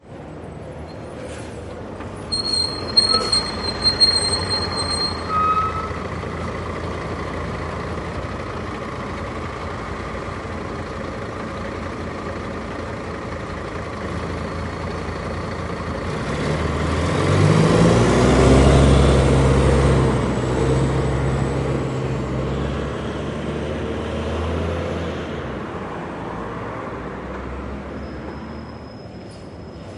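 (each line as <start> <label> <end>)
0.0 A bus arrives, idling with a low, steady engine hum. 2.2
1.2 A bus arrives with a quiet release of air from its brakes. 2.2
2.2 A bus brakes with a loud, high-pitched squeak. 6.5
6.5 A diesel bus idles nearby, producing a deep, steady engine hum. 14.6
14.6 A bus accelerates nearby with a deep engine roar that gradually fades into the distance. 30.0
28.1 A brake disc squeaks sharply with a high-pitched metallic sound in the distance. 30.0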